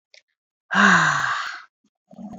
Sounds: Sigh